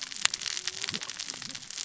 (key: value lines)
label: biophony, cascading saw
recorder: SoundTrap 600 or HydroMoth